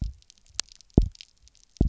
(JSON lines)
{"label": "biophony, double pulse", "recorder": "SoundTrap 300"}